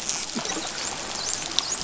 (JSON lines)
{"label": "biophony, dolphin", "recorder": "SoundTrap 500"}